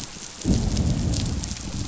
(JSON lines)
{"label": "biophony, growl", "recorder": "SoundTrap 500"}